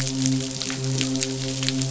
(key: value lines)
label: biophony, midshipman
recorder: SoundTrap 500